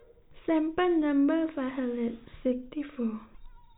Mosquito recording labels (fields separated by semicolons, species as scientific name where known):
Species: no mosquito; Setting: cup